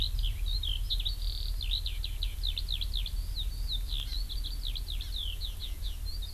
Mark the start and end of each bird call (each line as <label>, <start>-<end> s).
Eurasian Skylark (Alauda arvensis), 0.0-6.3 s